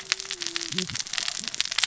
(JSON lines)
{"label": "biophony, cascading saw", "recorder": "SoundTrap 600 or HydroMoth"}